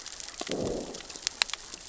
{"label": "biophony, growl", "recorder": "SoundTrap 600 or HydroMoth"}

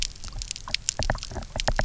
{"label": "biophony, knock", "recorder": "SoundTrap 300"}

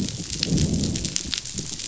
{"label": "biophony, growl", "recorder": "SoundTrap 500"}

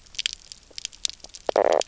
{"label": "biophony, knock croak", "recorder": "SoundTrap 300"}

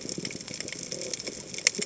{"label": "biophony", "recorder": "HydroMoth"}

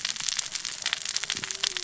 {"label": "biophony, cascading saw", "recorder": "SoundTrap 600 or HydroMoth"}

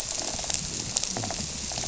{"label": "biophony", "recorder": "SoundTrap 300"}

